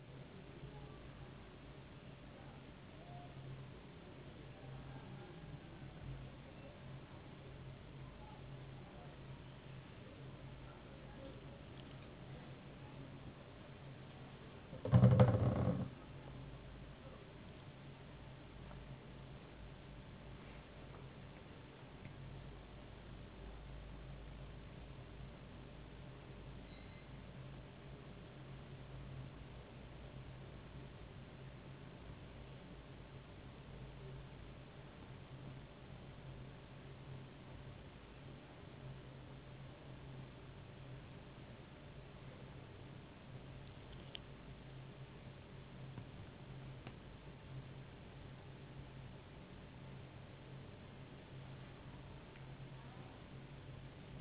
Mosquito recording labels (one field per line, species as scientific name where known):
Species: no mosquito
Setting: insect culture